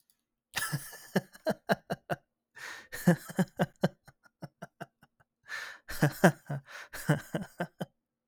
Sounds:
Laughter